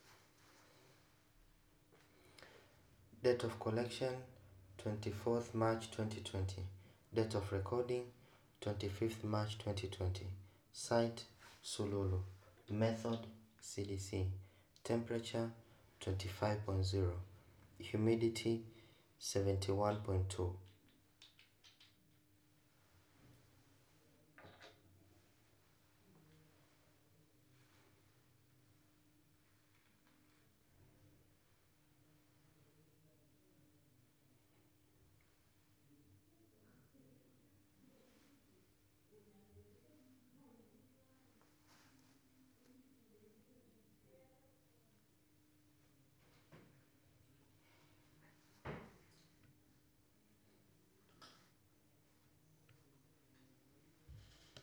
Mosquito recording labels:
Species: no mosquito; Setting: cup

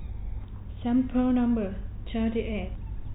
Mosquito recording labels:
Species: no mosquito; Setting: cup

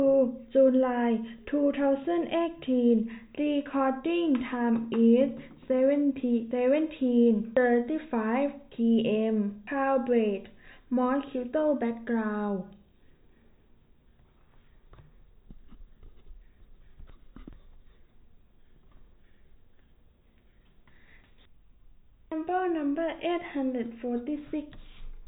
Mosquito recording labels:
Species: no mosquito; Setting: cup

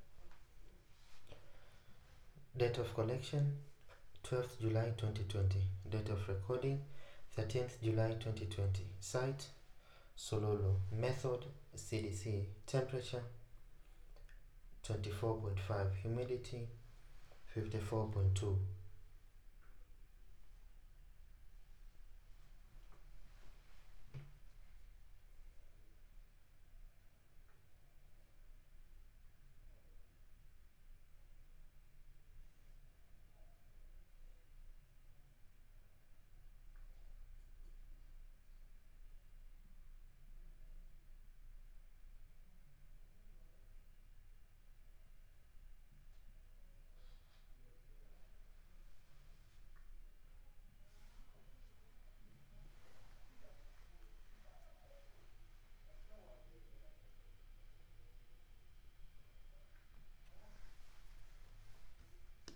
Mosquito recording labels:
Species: no mosquito; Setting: cup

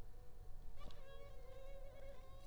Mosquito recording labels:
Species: Culex pipiens complex; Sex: female; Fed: unfed; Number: one; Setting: cup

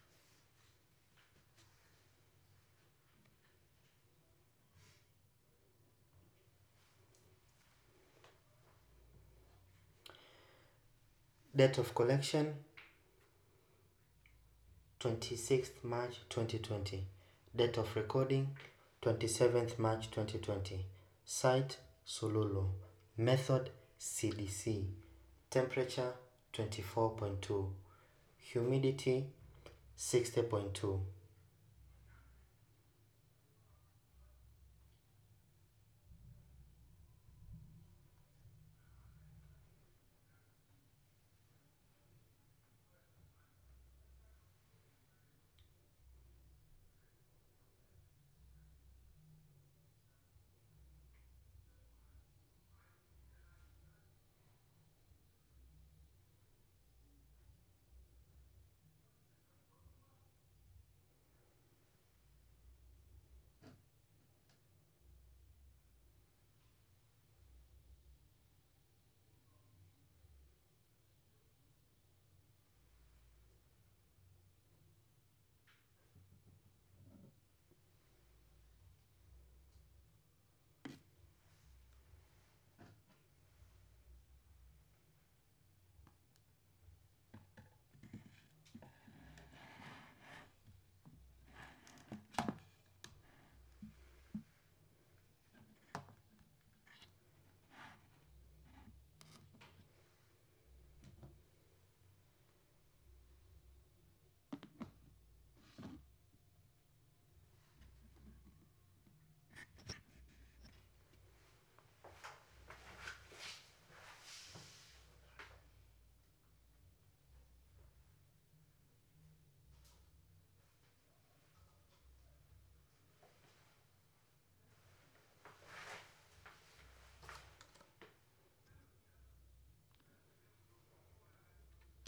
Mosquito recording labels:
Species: no mosquito; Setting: cup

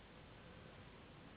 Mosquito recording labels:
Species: Anopheles gambiae s.s.; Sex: female; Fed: unfed; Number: one; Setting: insect culture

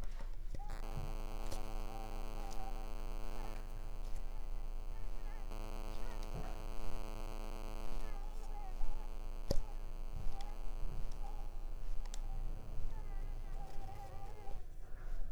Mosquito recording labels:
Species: Mansonia uniformis; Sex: female; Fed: unfed; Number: one; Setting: cup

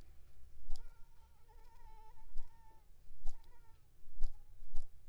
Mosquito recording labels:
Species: Anopheles squamosus; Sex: female; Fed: unfed; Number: one; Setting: cup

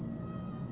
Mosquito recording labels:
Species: Aedes albopictus; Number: one; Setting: insect culture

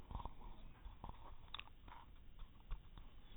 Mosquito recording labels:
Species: no mosquito; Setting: cup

